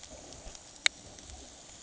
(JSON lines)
{"label": "ambient", "recorder": "HydroMoth"}